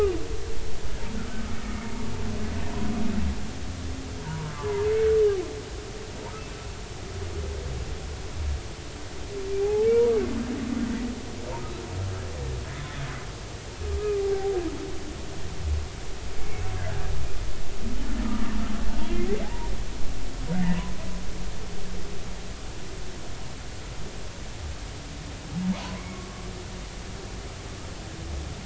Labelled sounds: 4.2	4.9	humpback whale, 0.86 to 1.2 kHz
9.6	9.9	humpback whale, 0.80 to 0.90 kHz
14.2	14.6	humpback whale, 0.80 to 0.83 kHz
18.2	18.6	humpback whale, 1.1 to 1.3 kHz
19.4	19.7	humpback whale, 0.80 to 1.0 kHz
20.5	20.8	humpback whale, 1.8 to 2.1 kHz
25.9	26.4	humpback whale, 1.1 to 2.3 kHz

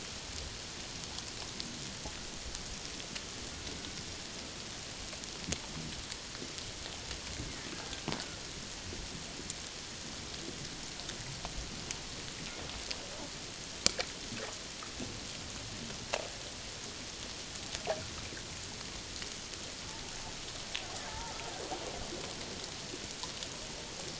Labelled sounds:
21.1	21.3	killer whale, Bigg's (transient), 0.81 to 1.0 kHz

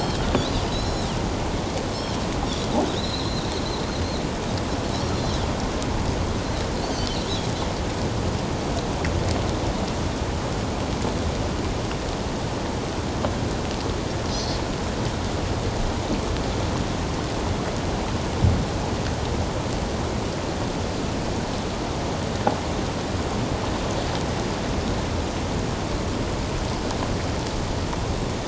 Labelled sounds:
0.0	1.1	Pacific white-sided dolphin, 3.1 to 5.5 kHz
2.9	3.5	Pacific white-sided dolphin, 3.5 to 6.9 kHz
5.1	5.4	Pacific white-sided dolphin, 3.8 to 4.2 kHz
6.8	7.1	Pacific white-sided dolphin, 4.4 to 4.8 kHz
14.3	14.6	Pacific white-sided dolphin, 3.9 to 4.5 kHz

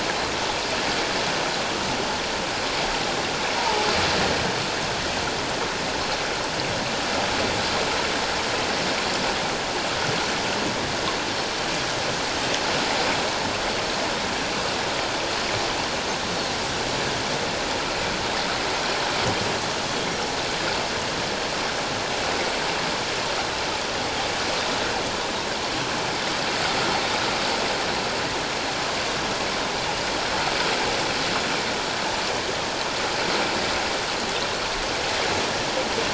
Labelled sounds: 3.6	3.9	humpback whale, 0.81 to 1.0 kHz

